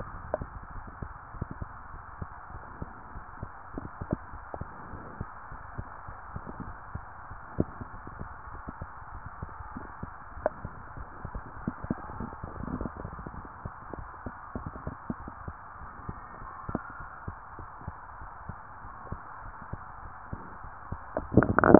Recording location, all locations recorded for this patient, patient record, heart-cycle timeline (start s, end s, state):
tricuspid valve (TV)
aortic valve (AV)+pulmonary valve (PV)+tricuspid valve (TV)
#Age: Child
#Sex: Female
#Height: 131.0 cm
#Weight: 44.9 kg
#Pregnancy status: False
#Murmur: Absent
#Murmur locations: nan
#Most audible location: nan
#Systolic murmur timing: nan
#Systolic murmur shape: nan
#Systolic murmur grading: nan
#Systolic murmur pitch: nan
#Systolic murmur quality: nan
#Diastolic murmur timing: nan
#Diastolic murmur shape: nan
#Diastolic murmur grading: nan
#Diastolic murmur pitch: nan
#Diastolic murmur quality: nan
#Outcome: Normal
#Campaign: 2015 screening campaign
0.00	0.08	diastole
0.08	0.24	S1
0.24	0.38	systole
0.38	0.48	S2
0.48	0.70	diastole
0.70	0.84	S1
0.84	0.98	systole
0.98	1.10	S2
1.10	1.34	diastole
1.34	1.50	S1
1.50	1.56	systole
1.56	1.72	S2
1.72	1.92	diastole
1.92	2.02	S1
2.02	2.18	systole
2.18	2.28	S2
2.28	2.50	diastole
2.50	2.62	S1
2.62	2.78	systole
2.78	2.92	S2
2.92	3.14	diastole
3.14	3.24	S1
3.24	3.38	systole
3.38	3.52	S2
3.52	3.74	diastole
3.74	3.90	S1
3.90	3.98	systole
3.98	4.10	S2
4.10	4.32	diastole
4.32	4.42	S1
4.42	4.54	systole
4.54	4.68	S2
4.68	4.90	diastole
4.90	5.00	S1
5.00	5.14	systole
5.14	5.28	S2
5.28	5.50	diastole
5.50	5.64	S1
5.64	5.74	systole
5.74	5.86	S2
5.86	6.08	diastole
6.08	6.20	S1
6.20	6.32	systole
6.32	6.46	S2
6.46	6.66	diastole
6.66	6.78	S1
6.78	6.90	systole
6.90	7.04	S2
7.04	7.28	diastole
7.28	7.42	S1
7.42	7.54	systole
7.54	7.70	S2
7.70	7.90	diastole
7.90	8.02	S1
8.02	8.16	systole
8.16	8.30	S2
8.30	8.52	diastole
8.52	8.64	S1
8.64	8.78	systole
8.78	8.90	S2
8.90	9.12	diastole
9.12	9.24	S1
9.24	9.36	systole
9.36	9.50	S2
9.50	9.72	diastole
9.72	9.88	S1
9.88	10.00	systole
10.00	10.12	S2
10.12	10.36	diastole
10.36	10.50	S1
10.50	10.62	systole
10.62	10.76	S2
10.76	10.98	diastole
10.98	11.12	S1
11.12	11.30	systole
11.30	11.44	S2
11.44	11.64	diastole
11.64	11.74	S1
11.74	11.82	systole
11.82	11.98	S2
11.98	12.14	diastole
12.14	12.30	S1
12.30	12.42	systole
12.42	12.52	S2
12.52	12.72	diastole
12.72	12.90	S1
12.90	13.02	systole
13.02	13.14	S2
13.14	13.36	diastole
13.36	13.50	S1
13.50	13.64	systole
13.64	13.74	S2
13.74	13.94	diastole
13.94	14.10	S1
14.10	14.24	systole
14.24	14.34	S2
14.34	14.54	diastole
14.54	14.72	S1
14.72	14.86	systole
14.86	14.96	S2
14.96	15.20	diastole
15.20	15.34	S1
15.34	15.46	systole
15.46	15.58	S2
15.58	15.82	diastole
15.82	15.92	S1
15.92	16.06	systole
16.06	16.16	S2
16.16	16.38	diastole
16.38	16.52	S1
16.52	16.66	systole
16.66	16.82	S2
16.82	17.00	diastole
17.00	17.10	S1
17.10	17.26	systole
17.26	17.38	S2
17.38	17.58	diastole
17.58	17.70	S1
17.70	17.86	systole
17.86	17.96	S2
17.96	18.18	diastole
18.18	18.30	S1
18.30	18.48	systole
18.48	18.58	S2
18.58	18.82	diastole
18.82	18.94	S1
18.94	19.06	systole
19.06	19.18	S2
19.18	19.42	diastole
19.42	19.54	S1
19.54	19.68	systole
19.68	19.82	S2
19.82	20.02	diastole
20.02	20.12	S1
20.12	20.28	systole
20.28	20.42	S2
20.42	20.64	diastole
20.64	20.76	S1
20.76	20.86	systole
20.86	20.98	S2
20.98	21.16	diastole